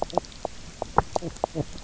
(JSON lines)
{"label": "biophony, knock croak", "recorder": "SoundTrap 300"}